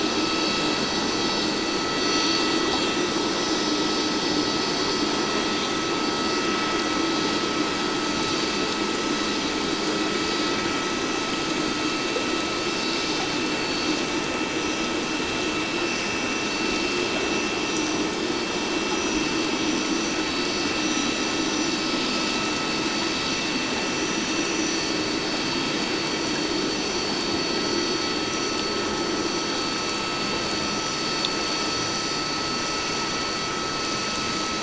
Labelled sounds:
13.6	13.8	vessel noise, 4.4 to 4.5 kHz

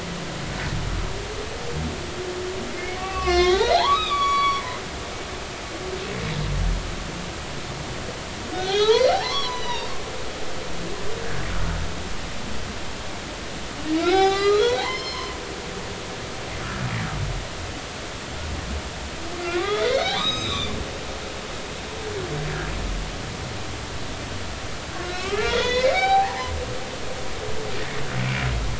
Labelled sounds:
2.7	4.6	humpback whale, 0.80 to 5.4 kHz
8.5	9.9	humpback whale, 0.80 to 6.0 kHz
14.0	15.4	humpback whale, 0.80 to 6.0 kHz
19.4	20.7	humpback whale, 0.93 to 7.7 kHz
25.1	26.5	humpback whale, 0.80 to 6.6 kHz

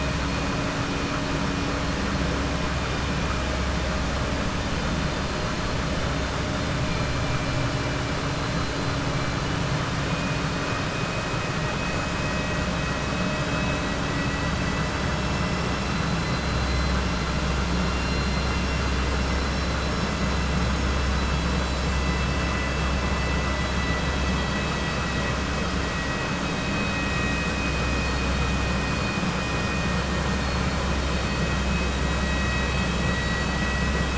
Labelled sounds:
14.0	14.9	vessel noise, 1.9 to 4.6 kHz
17.7	19.0	vessel noise, 2.1 to 5.5 kHz

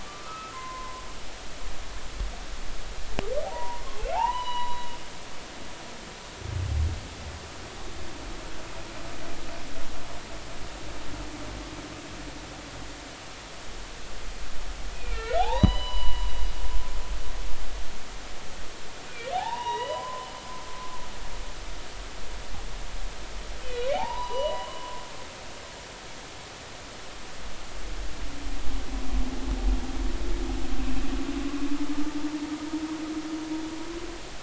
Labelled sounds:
0.0	1.0	humpback whale, 0.96 to 2.1 kHz
3.4	4.9	humpback whale, 0.80 to 4.0 kHz
14.9	16.3	humpback whale, 0.80 to 5.1 kHz
19.1	20.3	humpback whale, 0.80 to 4.0 kHz
23.6	24.9	humpback whale, 0.80 to 3.1 kHz

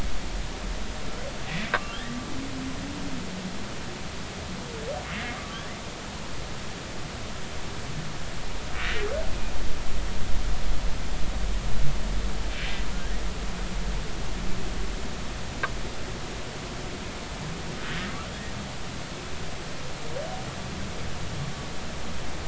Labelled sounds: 1.7	2.2	humpback whale, 1.0 to 2.0 kHz
5.3	5.7	humpback whale, 1.1 to 1.3 kHz

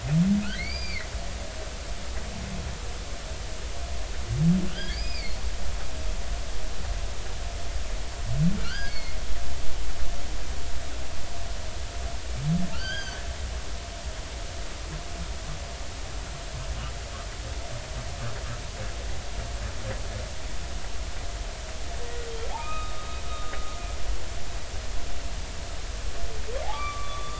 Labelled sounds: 0.5	1.1	humpback whale, 1.8 to 4.9 kHz
4.7	5.4	humpback whale, 1.4 to 5.1 kHz
8.6	9.2	humpback whale, 1.3 to 4.5 kHz
12.7	13.2	humpback whale, 1.2 to 6.6 kHz
22.5	23.5	humpback whale, 0.80 to 3.8 kHz
26.7	27.3	humpback whale, 1.1 to 3.6 kHz

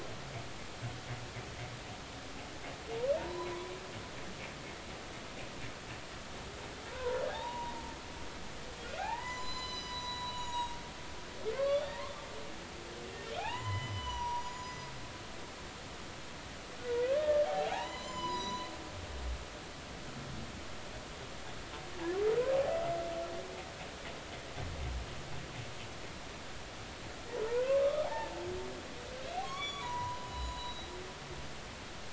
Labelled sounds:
3.2	3.7	humpback whale, 0.86 to 4.1 kHz
6.9	7.7	humpback whale, 0.80 to 1.1 kHz
8.8	10.8	humpback whale, 0.80 to 8.0 kHz
11.5	12.1	humpback whale, 1.0 to 2.2 kHz
13.4	14.9	humpback whale, 0.80 to 7.2 kHz
17.0	18.7	humpback whale, 0.80 to 7.3 kHz
27.3	28.3	humpback whale, 0.80 to 3.6 kHz
29.4	30.9	humpback whale, 0.90 to 7.0 kHz

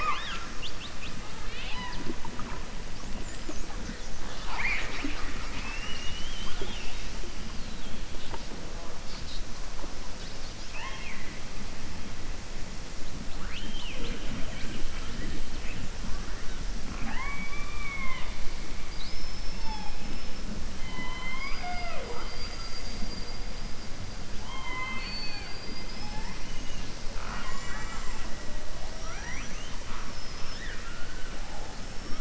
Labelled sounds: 10.6	11.4	killer whale, southern resident, 0.85 to 3.3 kHz
18.8	20.3	killer whale, southern resident, 0.82 to 5.4 kHz
24.4	28.2	killer whale, southern resident, 0.39 to 7.8 kHz
28.9	29.8	killer whale, southern resident, 0.65 to 6.6 kHz

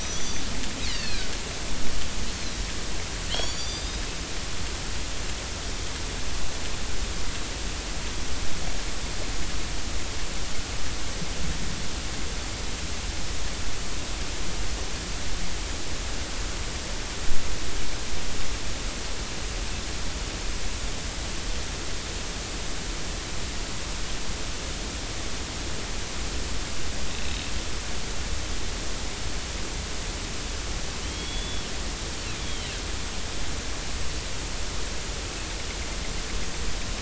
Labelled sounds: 0.0	1.3	killer whale, northern resident, 1.4 to 6.2 kHz
3.3	4.0	killer whale, northern resident, 2.8 to 7.1 kHz
27.1	27.4	killer whale, northern resident, 2.6 to 2.7 kHz
31.0	31.7	killer whale, northern resident, 2.9 to 3.5 kHz
32.4	32.7	killer whale, northern resident, 2.9 to 3.5 kHz

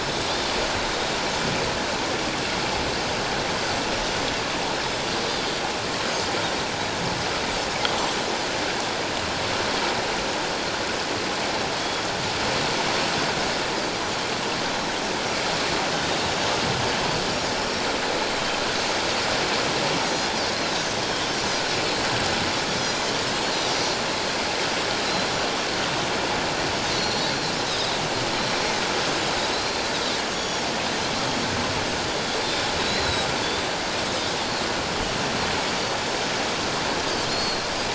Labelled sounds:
0.0	0.3	Pacific white-sided dolphin, 5.1 to 5.4 kHz
14.7	15.0	Pacific white-sided dolphin, 3.8 to 4.1 kHz
21.0	21.4	Pacific white-sided dolphin, 3.0 to 3.3 kHz
22.8	23.7	Pacific white-sided dolphin, 4.0 to 6.2 kHz
26.8	28.0	Pacific white-sided dolphin, 3.6 to 6.3 kHz
29.5	30.6	Pacific white-sided dolphin, 3.3 to 6.9 kHz
32.9	33.3	Pacific white-sided dolphin, 3.8 to 4.2 kHz
37.3	37.7	Pacific white-sided dolphin, 4.1 to 4.4 kHz

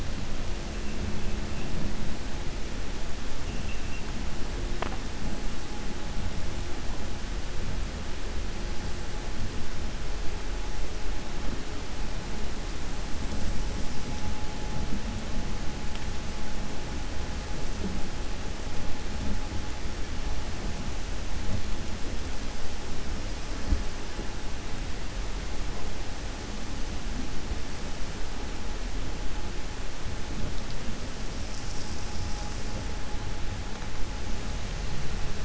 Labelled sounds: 3.5	4.0	vessel noise, 2.6 to 3.7 kHz

